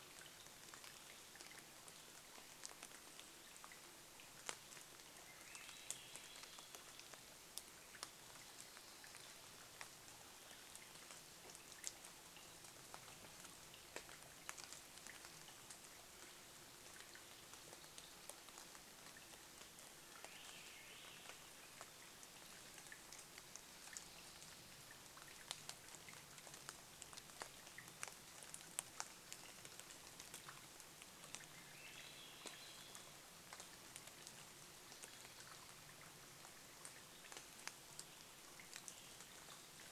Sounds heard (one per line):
rain
Swainson's Thrush song
insect buzz